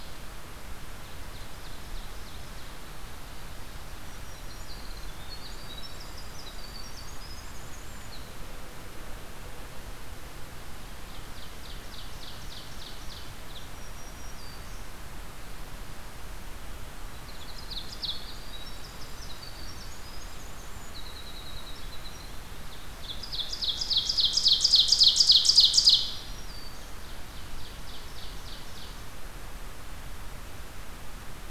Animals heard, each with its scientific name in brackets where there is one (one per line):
Ovenbird (Seiurus aurocapilla)
Black-throated Green Warbler (Setophaga virens)
Winter Wren (Troglodytes hiemalis)